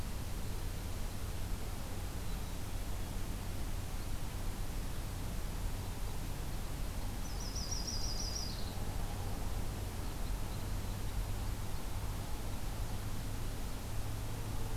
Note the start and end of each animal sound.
2.1s-3.2s: Black-capped Chickadee (Poecile atricapillus)
7.2s-8.7s: Yellow-rumped Warbler (Setophaga coronata)
9.5s-12.2s: Red Crossbill (Loxia curvirostra)

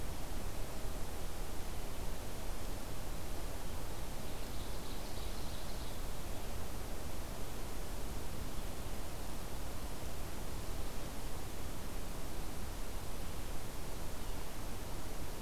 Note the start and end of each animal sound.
3.7s-6.2s: Ovenbird (Seiurus aurocapilla)

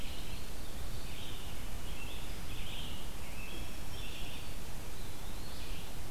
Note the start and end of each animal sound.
0.0s-0.8s: Eastern Wood-Pewee (Contopus virens)
0.0s-6.1s: Red-eyed Vireo (Vireo olivaceus)
1.1s-4.7s: American Robin (Turdus migratorius)
3.2s-4.7s: Black-throated Green Warbler (Setophaga virens)
4.8s-5.8s: Eastern Wood-Pewee (Contopus virens)

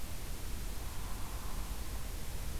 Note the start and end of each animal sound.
0.7s-1.9s: Hairy Woodpecker (Dryobates villosus)

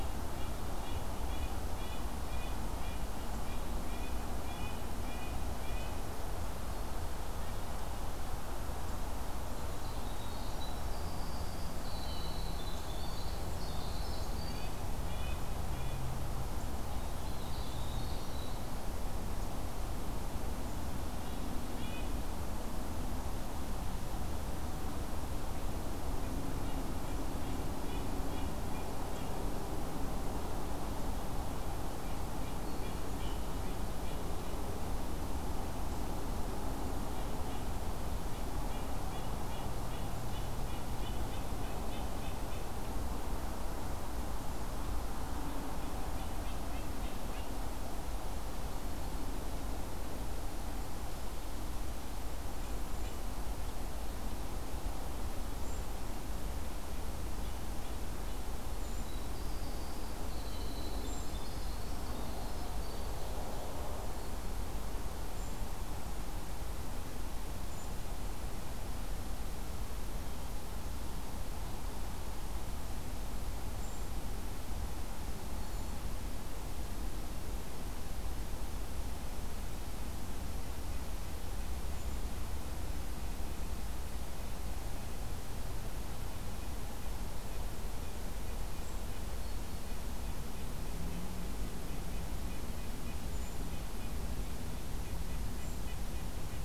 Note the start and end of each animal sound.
0.0s-6.0s: Red-breasted Nuthatch (Sitta canadensis)
9.4s-14.7s: Winter Wren (Troglodytes hiemalis)
14.4s-16.1s: Red-breasted Nuthatch (Sitta canadensis)
17.0s-18.7s: Winter Wren (Troglodytes hiemalis)
21.2s-22.1s: Red-breasted Nuthatch (Sitta canadensis)
26.1s-29.3s: Red-breasted Nuthatch (Sitta canadensis)
31.0s-34.5s: Red-breasted Nuthatch (Sitta canadensis)
37.1s-42.8s: Red-breasted Nuthatch (Sitta canadensis)
45.4s-47.5s: Red-breasted Nuthatch (Sitta canadensis)
52.4s-53.2s: Brown Creeper (Certhia americana)
55.6s-55.9s: Brown Creeper (Certhia americana)
57.3s-58.5s: Red-breasted Nuthatch (Sitta canadensis)
58.6s-59.3s: Brown Creeper (Certhia americana)
58.7s-63.3s: Winter Wren (Troglodytes hiemalis)
60.9s-61.4s: Brown Creeper (Certhia americana)
65.3s-65.8s: Brown Creeper (Certhia americana)
67.5s-68.1s: Brown Creeper (Certhia americana)
73.6s-74.3s: Brown Creeper (Certhia americana)
75.5s-76.1s: Brown Creeper (Certhia americana)
75.5s-76.1s: Black-throated Green Warbler (Setophaga virens)
81.8s-82.4s: Brown Creeper (Certhia americana)
88.2s-96.6s: Red-breasted Nuthatch (Sitta canadensis)
93.2s-93.7s: Brown Creeper (Certhia americana)
95.4s-95.9s: Brown Creeper (Certhia americana)

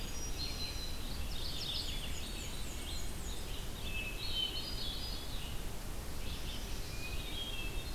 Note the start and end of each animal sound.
0.0s-1.0s: Hermit Thrush (Catharus guttatus)
0.0s-7.9s: Red-eyed Vireo (Vireo olivaceus)
1.2s-1.9s: Mourning Warbler (Geothlypis philadelphia)
1.6s-2.8s: Hermit Thrush (Catharus guttatus)
1.6s-3.5s: Black-and-white Warbler (Mniotilta varia)
3.9s-5.5s: Hermit Thrush (Catharus guttatus)
6.0s-7.2s: Chestnut-sided Warbler (Setophaga pensylvanica)
6.9s-7.9s: Hermit Thrush (Catharus guttatus)

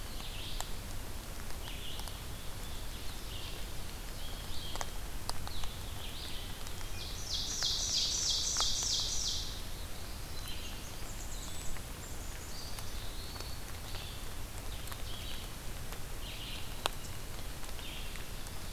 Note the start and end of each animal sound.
0.0s-18.7s: Red-eyed Vireo (Vireo olivaceus)
2.3s-4.6s: Ovenbird (Seiurus aurocapilla)
7.0s-9.7s: Ovenbird (Seiurus aurocapilla)
10.1s-11.8s: Blackburnian Warbler (Setophaga fusca)
11.9s-13.7s: Black-capped Chickadee (Poecile atricapillus)
12.4s-13.8s: Eastern Wood-Pewee (Contopus virens)

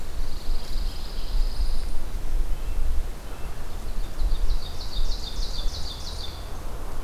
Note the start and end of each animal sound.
0.0s-1.9s: Pine Warbler (Setophaga pinus)
2.1s-3.7s: Red-breasted Nuthatch (Sitta canadensis)
3.6s-6.3s: Ovenbird (Seiurus aurocapilla)
5.2s-6.3s: Golden-crowned Kinglet (Regulus satrapa)

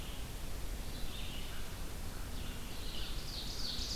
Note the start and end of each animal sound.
0.0s-4.0s: Red-eyed Vireo (Vireo olivaceus)
1.4s-4.0s: American Crow (Corvus brachyrhynchos)
2.5s-4.0s: Ovenbird (Seiurus aurocapilla)

